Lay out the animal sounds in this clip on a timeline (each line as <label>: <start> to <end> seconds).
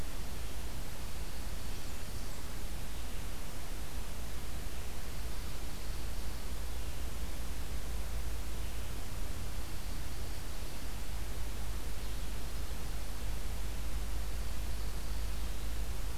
Blackburnian Warbler (Setophaga fusca): 1.2 to 2.6 seconds
Dark-eyed Junco (Junco hyemalis): 9.4 to 11.1 seconds